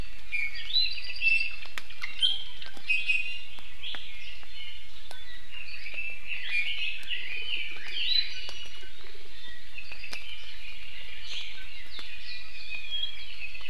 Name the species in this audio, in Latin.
Drepanis coccinea, Himatione sanguinea, Leiothrix lutea